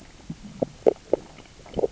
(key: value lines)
label: biophony, grazing
recorder: SoundTrap 600 or HydroMoth